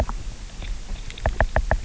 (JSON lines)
{"label": "biophony, knock", "recorder": "SoundTrap 300"}